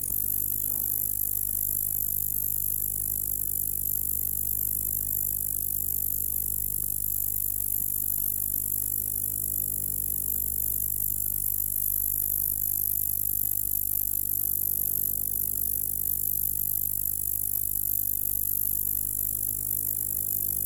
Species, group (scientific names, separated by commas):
Bradyporus oniscus, Orthoptera